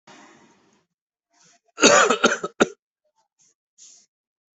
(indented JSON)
{
  "expert_labels": [
    {
      "quality": "good",
      "cough_type": "dry",
      "dyspnea": false,
      "wheezing": false,
      "stridor": false,
      "choking": false,
      "congestion": false,
      "nothing": true,
      "diagnosis": "upper respiratory tract infection",
      "severity": "mild"
    }
  ],
  "age": 29,
  "gender": "male",
  "respiratory_condition": false,
  "fever_muscle_pain": false,
  "status": "COVID-19"
}